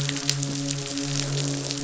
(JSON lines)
{"label": "biophony, croak", "recorder": "SoundTrap 500"}
{"label": "biophony, midshipman", "recorder": "SoundTrap 500"}